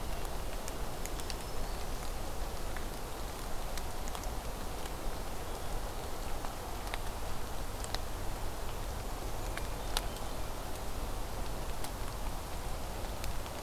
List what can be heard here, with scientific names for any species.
Setophaga virens, Catharus guttatus